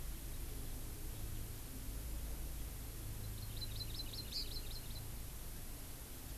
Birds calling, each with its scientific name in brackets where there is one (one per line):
Hawaii Amakihi (Chlorodrepanis virens)